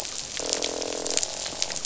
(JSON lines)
{"label": "biophony, croak", "recorder": "SoundTrap 500"}